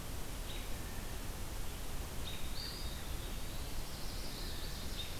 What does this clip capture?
American Robin, Eastern Wood-Pewee, Chestnut-sided Warbler